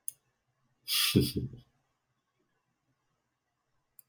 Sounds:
Laughter